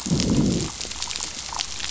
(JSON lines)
{"label": "biophony, growl", "recorder": "SoundTrap 500"}